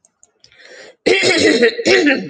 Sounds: Throat clearing